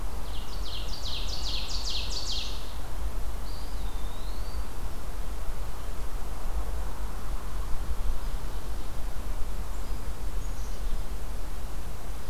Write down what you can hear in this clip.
Ovenbird, Eastern Wood-Pewee